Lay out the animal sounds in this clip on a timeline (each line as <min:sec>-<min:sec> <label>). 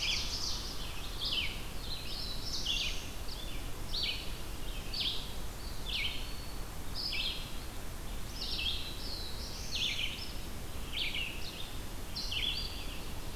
0:00.0-0:00.9 Ovenbird (Seiurus aurocapilla)
0:00.0-0:13.4 Red-eyed Vireo (Vireo olivaceus)
0:01.5-0:03.3 Black-throated Blue Warbler (Setophaga caerulescens)
0:05.3-0:06.8 Eastern Wood-Pewee (Contopus virens)
0:08.0-0:10.0 Black-throated Blue Warbler (Setophaga caerulescens)